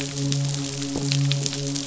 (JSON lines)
{"label": "biophony, midshipman", "recorder": "SoundTrap 500"}